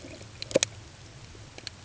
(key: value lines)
label: ambient
recorder: HydroMoth